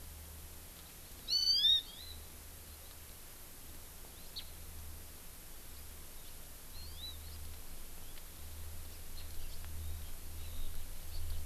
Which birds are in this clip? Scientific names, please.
Chlorodrepanis virens